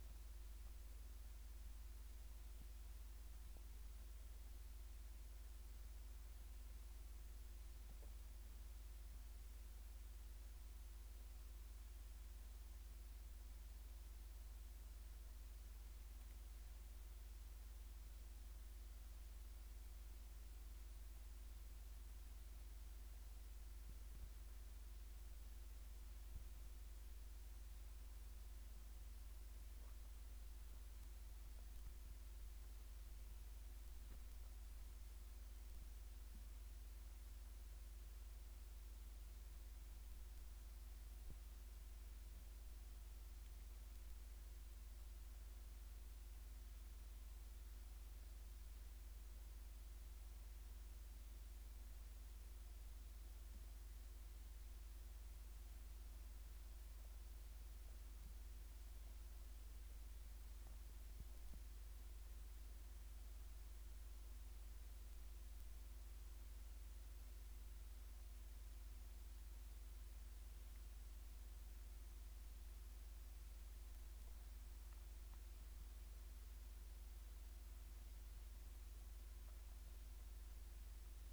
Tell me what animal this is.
Phaneroptera falcata, an orthopteran